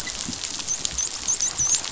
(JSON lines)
{"label": "biophony, dolphin", "recorder": "SoundTrap 500"}